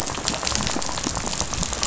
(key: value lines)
label: biophony, rattle
recorder: SoundTrap 500